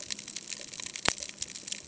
{"label": "ambient", "recorder": "HydroMoth"}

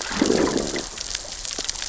{"label": "biophony, growl", "recorder": "SoundTrap 600 or HydroMoth"}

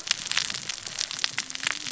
{"label": "biophony, cascading saw", "recorder": "SoundTrap 600 or HydroMoth"}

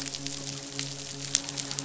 {"label": "biophony, midshipman", "recorder": "SoundTrap 500"}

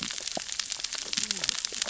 {"label": "biophony, cascading saw", "recorder": "SoundTrap 600 or HydroMoth"}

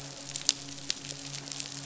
{"label": "biophony, midshipman", "recorder": "SoundTrap 500"}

